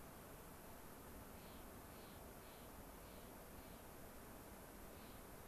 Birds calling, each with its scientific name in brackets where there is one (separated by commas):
Clark's Nutcracker (Nucifraga columbiana)